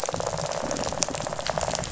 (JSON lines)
{"label": "biophony, rattle", "recorder": "SoundTrap 500"}